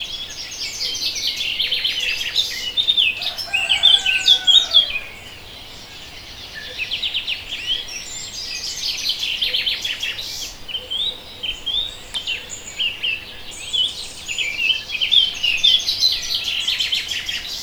Are the animals inside a house?
no